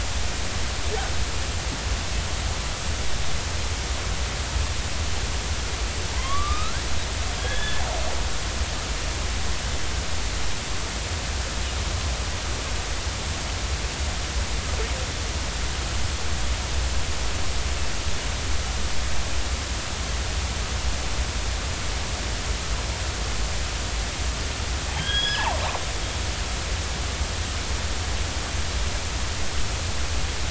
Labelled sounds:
6.1	7.8	killer whale, northern resident, 0.90 to 4.1 kHz
24.9	25.5	killer whale, northern resident, 1.5 to 5.1 kHz

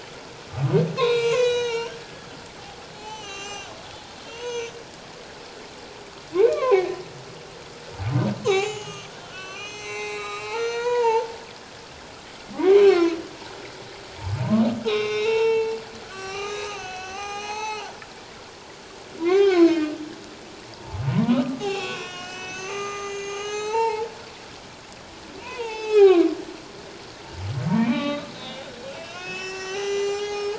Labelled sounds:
1.0	2.3	humpback whale, 0.88 to 6.9 kHz
3.0	3.7	humpback whale, 0.78 to 7.4 kHz
4.2	4.7	humpback whale, 0.91 to 6.4 kHz
6.3	7.0	humpback whale, 0.78 to 2.7 kHz
8.4	11.3	humpback whale, 0.78 to 7.7 kHz
12.6	13.2	humpback whale, 0.94 to 4.6 kHz
14.4	15.8	humpback whale, 0.84 to 5.6 kHz
16.0	17.9	humpback whale, 0.78 to 6.5 kHz
19.2	19.9	humpback whale, 0.78 to 4.1 kHz
21.1	24.1	humpback whale, 0.78 to 7.4 kHz
25.4	26.3	humpback whale, 0.78 to 4.9 kHz
27.7	28.6	humpback whale, 0.88 to 4.1 kHz
28.9	30.5	humpback whale, 0.78 to 7.9 kHz

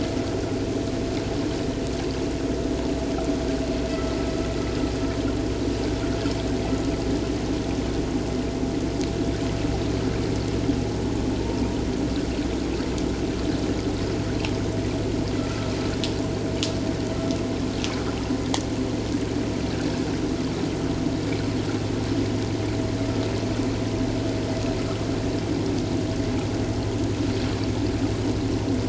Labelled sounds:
15.4	15.7	vessel noise, 1.3 to 1.4 kHz

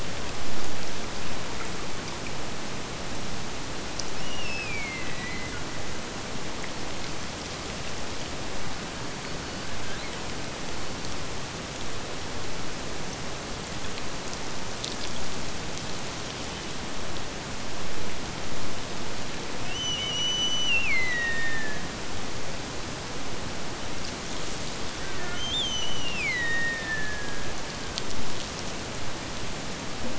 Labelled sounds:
4.1	5.7	killer whale, Bigg's (transient), Gulf of Alaska transient, 1.8 to 8.0 kHz
19.6	22.0	killer whale, Bigg's (transient), Gulf of Alaska transient, 1.5 to 8.0 kHz
25.3	27.7	killer whale, Bigg's (transient), Gulf of Alaska transient, 1.5 to 6.4 kHz

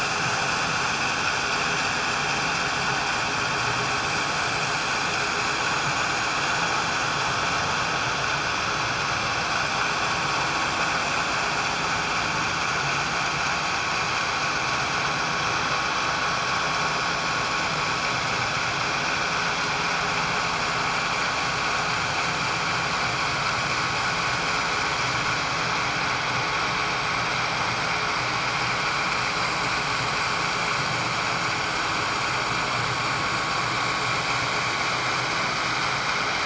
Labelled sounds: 4.2	4.4	vessel noise, 6.7 to 6.9 kHz

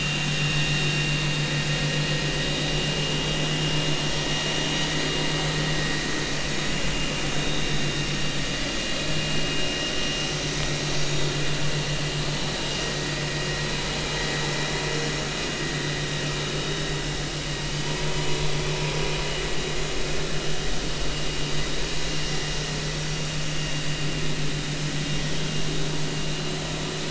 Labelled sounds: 7.3	7.6	vessel noise, 3.6 to 3.9 kHz

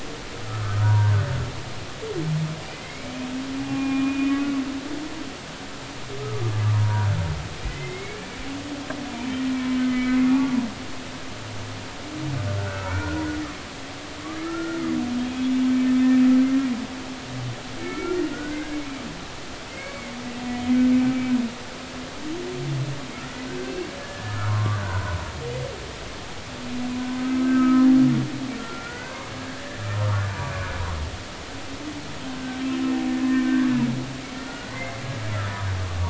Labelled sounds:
0.5	1.2	humpback whale, 0.90 to 1.6 kHz
2.7	4.3	humpback whale, 0.80 to 2.5 kHz
6.7	8.4	humpback whale, 0.90 to 2.4 kHz
9.5	10.6	humpback whale, 1.1 to 2.4 kHz
10.8	11.2	humpback whale, 2.0 to 2.1 kHz
12.6	13.2	humpback whale, 1.3 to 2.5 kHz
14.4	15.5	humpback whale, 1.2 to 3.4 kHz
17.8	18.6	humpback whale, 1.3 to 2.3 kHz
19.7	20.1	humpback whale, 2.0 to 2.3 kHz
23.2	25.2	humpback whale, 0.90 to 1.8 kHz
27.2	27.9	humpback whale, 1.2 to 1.7 kHz
28.6	29.6	humpback whale, 1.3 to 1.8 kHz
30.0	30.4	humpback whale, 1.1 to 1.5 kHz
33.5	33.7	humpback whale, 1.5 to 1.7 kHz
34.5	35.0	humpback whale, 1.4 to 2.2 kHz

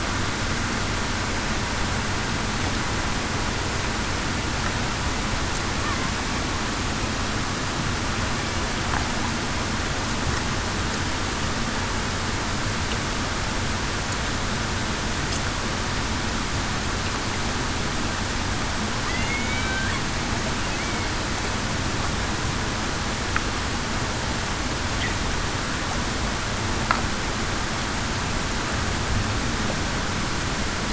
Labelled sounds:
19.1	19.8	killer whale, Bigg's (transient), 1.9 to 2.3 kHz

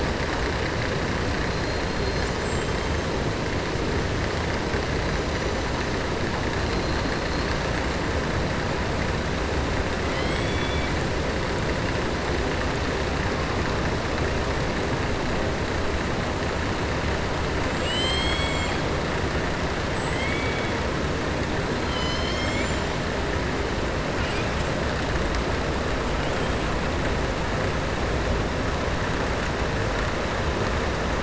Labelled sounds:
10.0	10.9	killer whale, southern resident, 2.0 to 5.1 kHz
17.6	18.8	killer whale, southern resident, 2.1 to 7.7 kHz
20.1	20.7	killer whale, southern resident, 1.9 to 3.5 kHz
21.8	22.9	killer whale, southern resident, 2.0 to 7.5 kHz

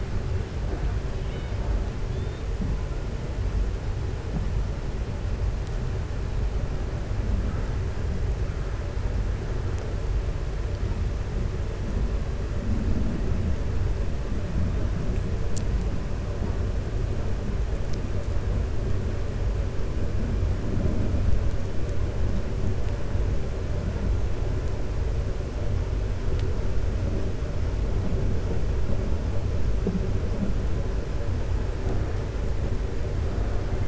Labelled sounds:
1.1	1.7	killer whale, 0.67 to 3.8 kHz
2.1	2.4	killer whale, 3.4 to 4.5 kHz

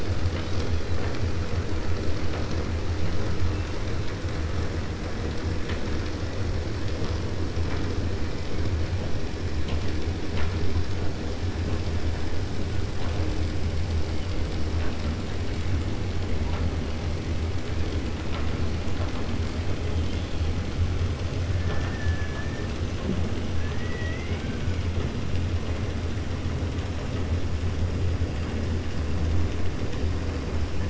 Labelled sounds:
21.6	22.7	killer whale, 0.42 to 2.6 kHz
23.6	24.8	killer whale, 1.4 to 3.5 kHz

